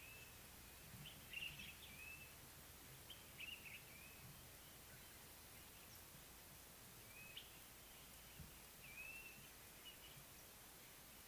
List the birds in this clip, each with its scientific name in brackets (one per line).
Common Bulbul (Pycnonotus barbatus)
Blue-naped Mousebird (Urocolius macrourus)